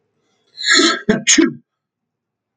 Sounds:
Sneeze